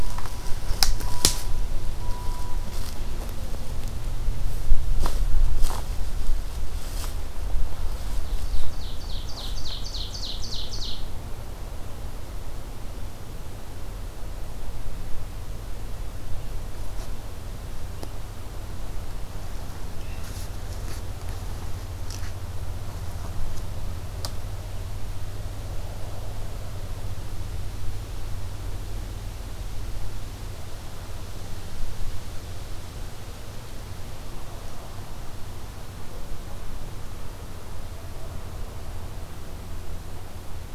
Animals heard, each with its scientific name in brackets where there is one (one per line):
Ovenbird (Seiurus aurocapilla)